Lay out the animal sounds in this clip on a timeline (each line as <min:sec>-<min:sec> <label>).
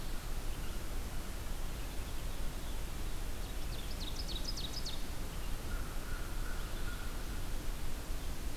0:03.3-0:05.0 Ovenbird (Seiurus aurocapilla)
0:05.4-0:07.5 American Crow (Corvus brachyrhynchos)